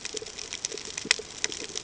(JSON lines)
{"label": "ambient", "recorder": "HydroMoth"}